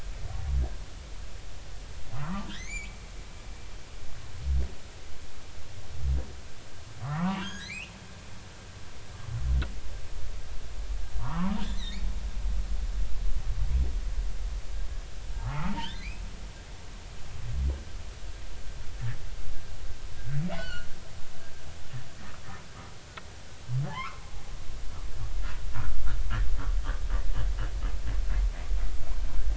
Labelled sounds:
2.2	3.0	humpback whale, 0.80 to 7.2 kHz
7.0	7.9	humpback whale, 0.83 to 5.0 kHz
11.2	12.1	humpback whale, 0.86 to 4.6 kHz
15.4	16.2	humpback whale, 0.80 to 3.7 kHz
20.6	20.9	humpback whale, 1.3 to 3.1 kHz
23.9	24.2	humpback whale, 0.80 to 2.4 kHz

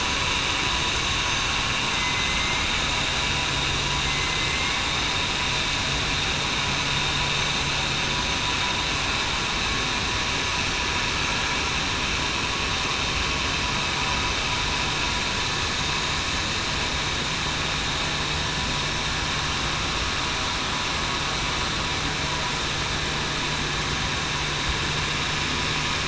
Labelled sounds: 2.1	2.7	killer whale, southern resident, 2.0 to 2.2 kHz
4.0	4.8	killer whale, southern resident, 2.0 to 2.3 kHz

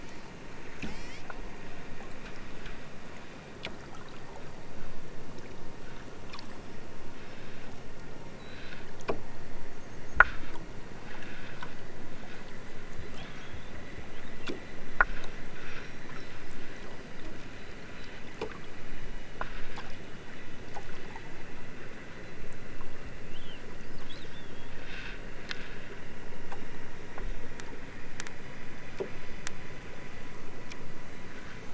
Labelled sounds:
0.0	0.3	killer whale, southern Alaska resident, 2.7 to 8.0 kHz
0.7	1.3	killer whale, southern Alaska resident, 1.5 to 8.0 kHz

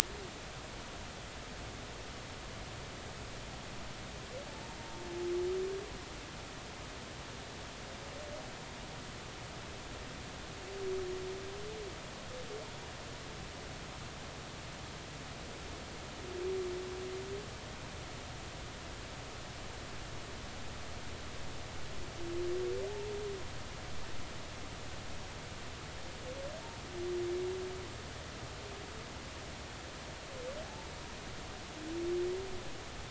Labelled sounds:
30.6	30.9	humpback whale, 0.80 to 0.99 kHz

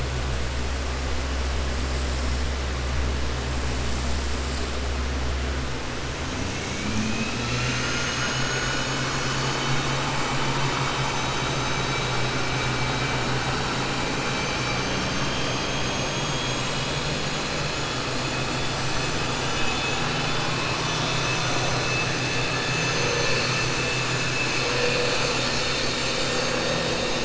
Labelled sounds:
19.4	20.0	vessel noise, 2.3 to 4.2 kHz
20.7	21.7	vessel noise, 5.2 to 7.0 kHz

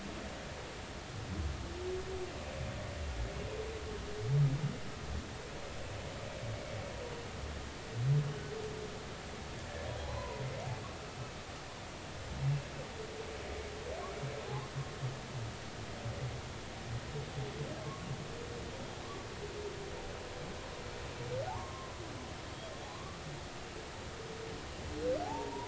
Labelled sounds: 10.0	10.4	humpback whale, 0.80 to 1.1 kHz
21.5	21.9	humpback whale, 0.80 to 1.2 kHz
22.9	23.2	humpback whale, 0.96 to 1.2 kHz
25.2	25.6	humpback whale, 0.80 to 1.0 kHz

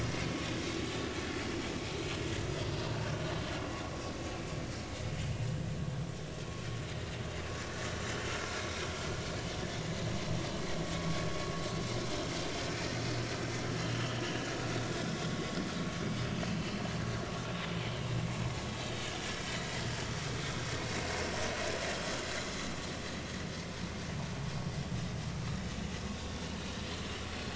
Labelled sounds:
14.7	14.9	vessel noise, 3.5 to 3.9 kHz
16.5	16.7	vessel noise, 2.5 to 2.8 kHz

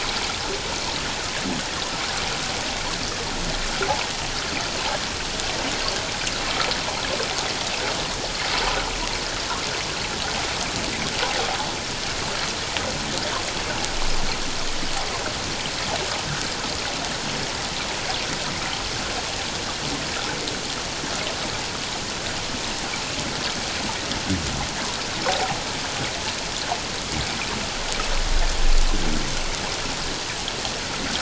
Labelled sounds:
25.3	25.6	water noise, 0.78 to 0.91 kHz

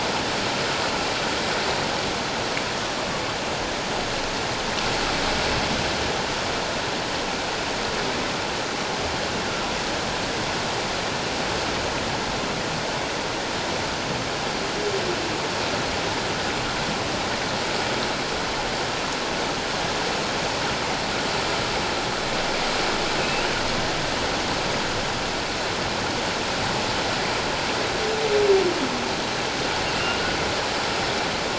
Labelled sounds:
23.2	23.4	humpback whale, 2.5 to 2.7 kHz
30.0	30.3	humpback whale, 2.7 to 2.9 kHz

